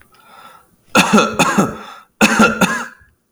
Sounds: Cough